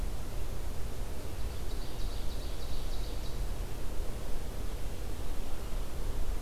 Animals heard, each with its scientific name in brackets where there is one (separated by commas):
Red-eyed Vireo (Vireo olivaceus), Ovenbird (Seiurus aurocapilla)